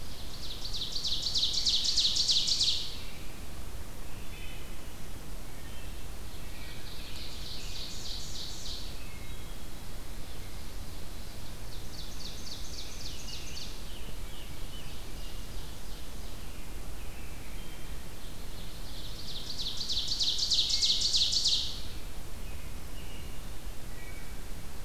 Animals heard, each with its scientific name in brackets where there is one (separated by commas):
Scarlet Tanager (Piranga olivacea), Ovenbird (Seiurus aurocapilla), Wood Thrush (Hylocichla mustelina), American Robin (Turdus migratorius)